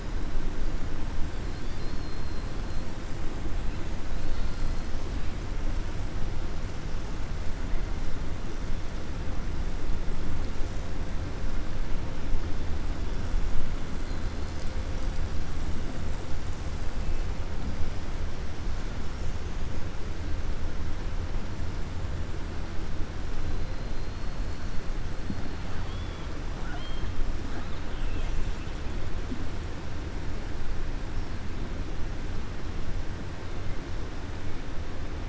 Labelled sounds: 25.7	26.3	killer whale, 3.1 to 3.5 kHz
27.5	28.4	killer whale, 2.1 to 4.3 kHz

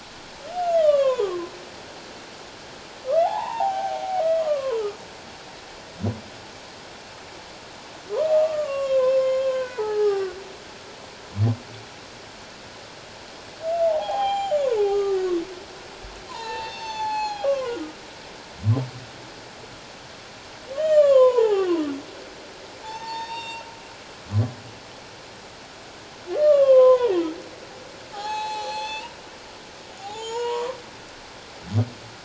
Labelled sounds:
0.5	1.5	humpback whale, 0.94 to 3.8 kHz
3.2	4.0	humpback whale, 0.78 to 3.5 kHz
4.4	4.8	humpback whale, 0.94 to 1.3 kHz
8.3	10.4	humpback whale, 0.78 to 6.9 kHz
13.9	15.2	humpback whale, 0.78 to 7.2 kHz
16.3	17.8	humpback whale, 0.78 to 6.9 kHz
20.7	21.8	humpback whale, 0.78 to 3.5 kHz
22.8	23.6	humpback whale, 0.81 to 7.4 kHz
26.4	27.3	humpback whale, 0.84 to 3.6 kHz
28.1	30.8	humpback whale, 0.78 to 7.9 kHz

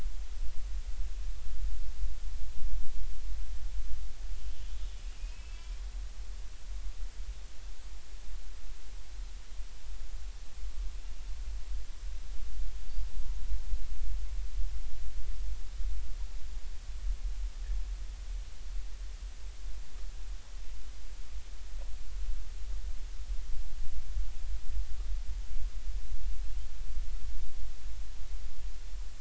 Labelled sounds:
4.4	5.7	killer whale, Bigg's (transient), 2.4 to 3.2 kHz
6.5	6.8	killer whale, Bigg's (transient), 2.2 to 2.5 kHz
13.1	13.4	killer whale, Bigg's (transient), 0.86 to 0.99 kHz

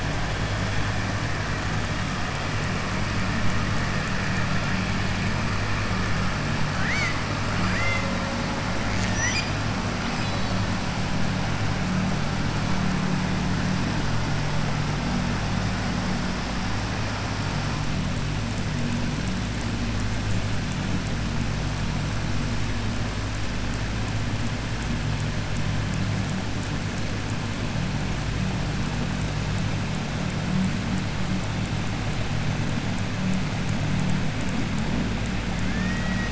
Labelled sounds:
7.5	8.1	killer whale, southern resident, 0.56 to 4.4 kHz
10.1	10.6	killer whale, southern resident, 2.5 to 5.2 kHz
35.6	36.3	killer whale, southern resident, 1.3 to 2.5 kHz

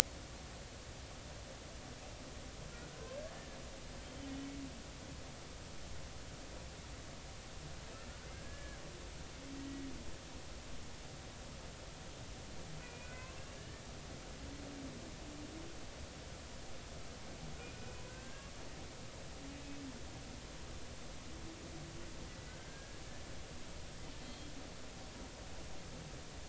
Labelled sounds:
2.9	3.2	humpback whale, 1.4 to 1.6 kHz
8.3	8.8	humpback whale, 1.5 to 1.8 kHz
9.7	9.9	humpback whale, 1.9 to 2.0 kHz
12.8	13.8	humpback whale, 0.99 to 2.7 kHz
17.6	18.5	humpback whale, 1.5 to 2.5 kHz
19.5	19.8	humpback whale, 2.5 to 2.6 kHz
22.5	23.0	humpback whale, 1.4 to 1.7 kHz
24.2	24.5	humpback whale, 3.2 to 4.2 kHz

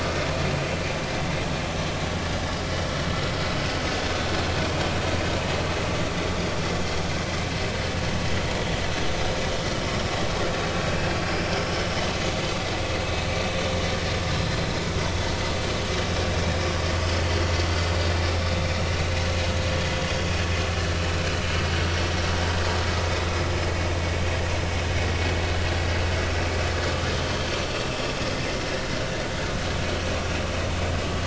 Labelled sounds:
14.6	14.9	vessel noise, 5.0 to 5.3 kHz
18.9	19.2	vessel noise, 3.9 to 4.0 kHz

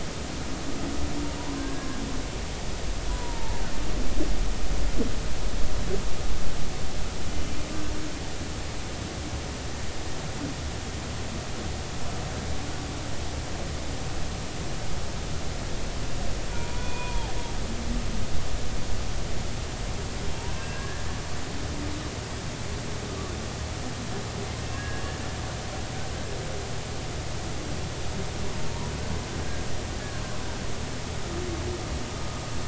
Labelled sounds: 1.4	1.9	humpback whale, 0.86 to 1.7 kHz
3.1	3.6	humpback whale, 0.86 to 1.0 kHz
16.5	17.3	humpback whale, 0.80 to 2.5 kHz
20.5	21.0	humpback whale, 1.5 to 1.8 kHz
24.7	25.0	humpback whale, 1.6 to 1.7 kHz

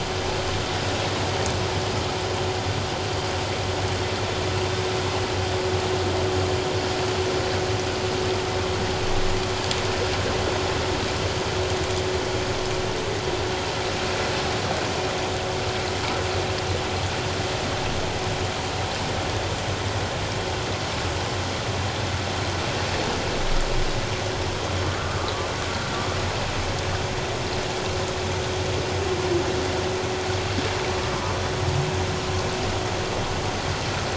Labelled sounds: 24.8	25.1	vessel noise, 1.2 to 1.5 kHz

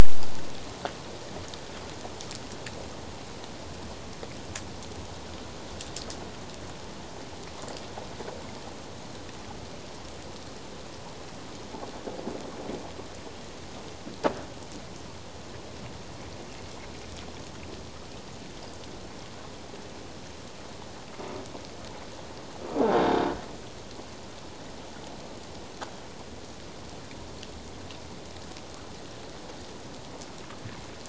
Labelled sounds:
22.9	23.3	croaking sound likely from a nearby submerged object, 3.5 to 3.8 kHz

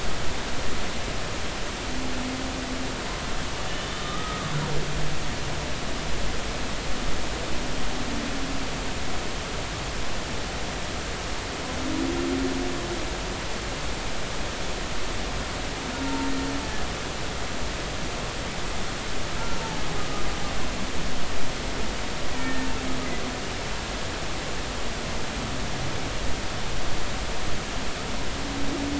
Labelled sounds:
3.9	4.5	humpback whale, 1.1 to 1.3 kHz
16.0	16.3	humpback whale, 0.86 to 0.96 kHz
22.4	22.7	humpback whale, 1.7 to 1.9 kHz

